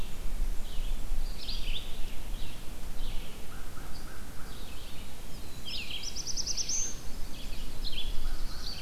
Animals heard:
Red-eyed Vireo (Vireo olivaceus)
American Crow (Corvus brachyrhynchos)
Black-throated Blue Warbler (Setophaga caerulescens)

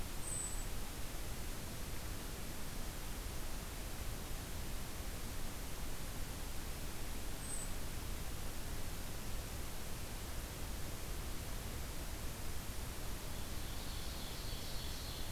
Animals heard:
Golden-crowned Kinglet (Regulus satrapa)
Ovenbird (Seiurus aurocapilla)

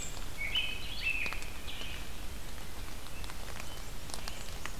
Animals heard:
American Robin (Turdus migratorius)
Red-eyed Vireo (Vireo olivaceus)

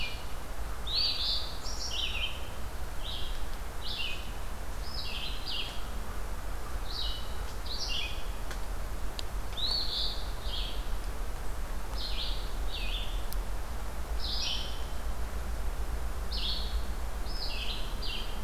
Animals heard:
Eastern Phoebe (Sayornis phoebe)
Red-eyed Vireo (Vireo olivaceus)

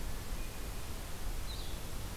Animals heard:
Blue-headed Vireo (Vireo solitarius)

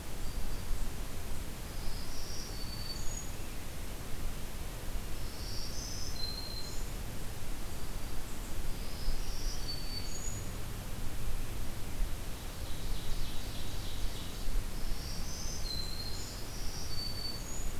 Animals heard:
Black-throated Green Warbler (Setophaga virens)
Ovenbird (Seiurus aurocapilla)

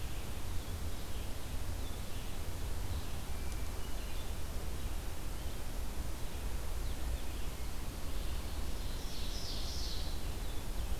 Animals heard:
Ovenbird (Seiurus aurocapilla)
Blue-headed Vireo (Vireo solitarius)
Hermit Thrush (Catharus guttatus)
Red-eyed Vireo (Vireo olivaceus)

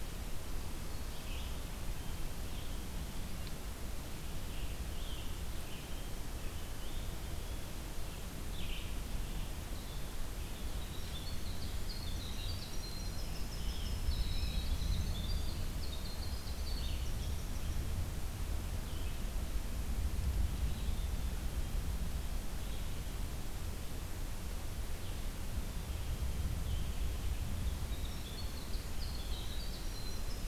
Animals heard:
Winter Wren (Troglodytes hiemalis)
Red-eyed Vireo (Vireo olivaceus)

